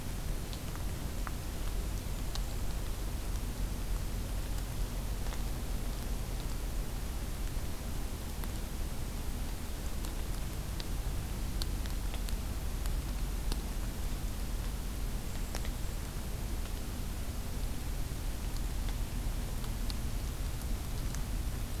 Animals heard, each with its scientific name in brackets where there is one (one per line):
Golden-crowned Kinglet (Regulus satrapa)